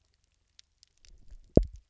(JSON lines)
{"label": "biophony, double pulse", "recorder": "SoundTrap 300"}